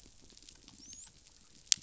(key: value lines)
label: biophony, dolphin
recorder: SoundTrap 500